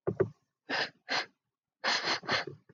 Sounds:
Sniff